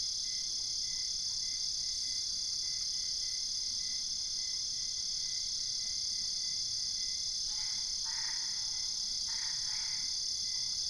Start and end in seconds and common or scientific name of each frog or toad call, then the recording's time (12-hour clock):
7.1	10.3	Boana albopunctata
3:30am